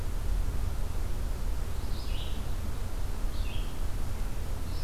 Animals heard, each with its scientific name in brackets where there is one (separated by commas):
Red-eyed Vireo (Vireo olivaceus)